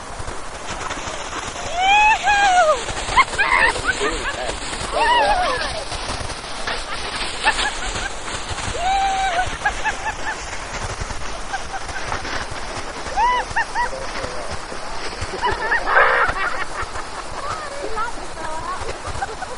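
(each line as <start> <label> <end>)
0.0 Skiing on snow with cracking sounds. 19.6
1.6 A woman shouts a cheering sound. 3.0
3.0 A woman laughs shortly. 4.7
4.7 A woman cheers. 6.5
6.5 A woman cheers and laughs. 10.4
13.0 A woman cheers. 13.8
15.2 People cheering. 16.7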